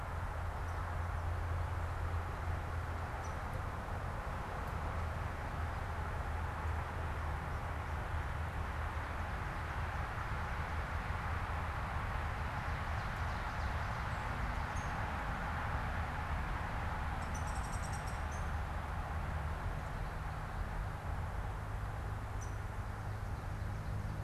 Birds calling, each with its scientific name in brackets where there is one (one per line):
Downy Woodpecker (Dryobates pubescens)
Ovenbird (Seiurus aurocapilla)